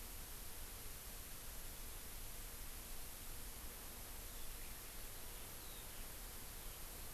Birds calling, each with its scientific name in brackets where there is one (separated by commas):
Eurasian Skylark (Alauda arvensis)